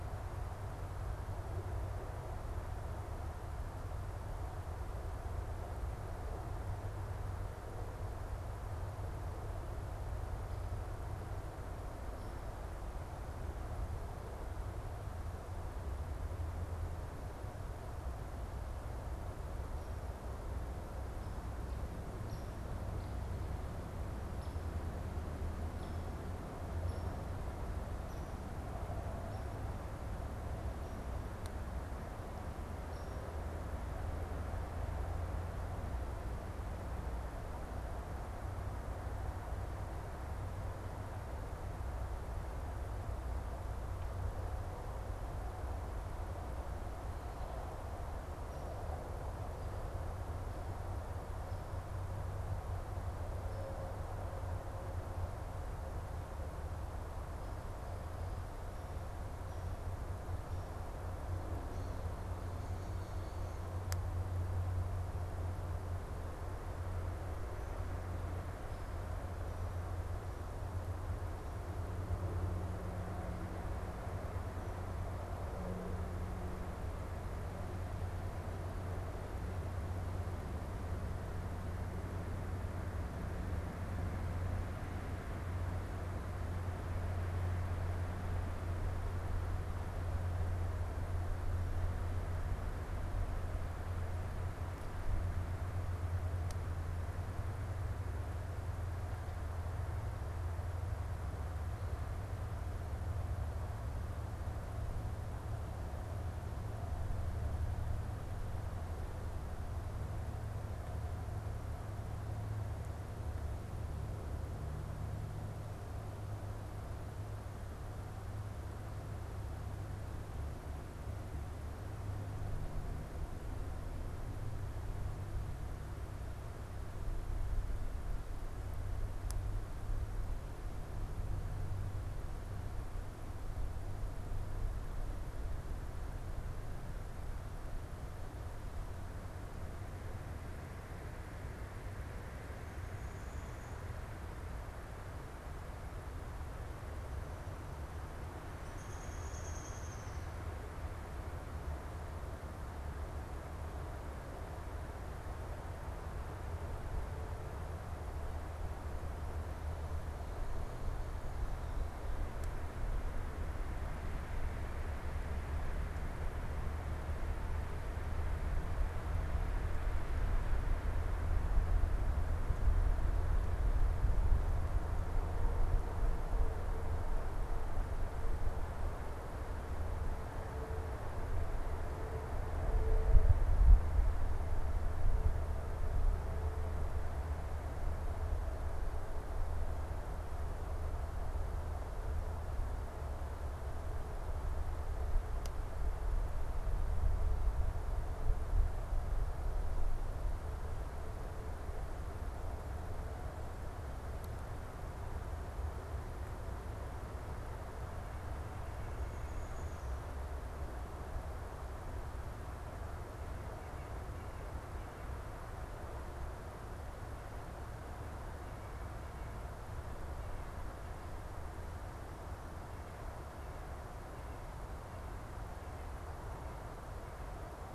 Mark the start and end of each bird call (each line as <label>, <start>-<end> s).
Hairy Woodpecker (Dryobates villosus), 22.0-34.4 s
Downy Woodpecker (Dryobates pubescens), 148.5-150.4 s